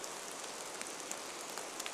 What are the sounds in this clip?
rain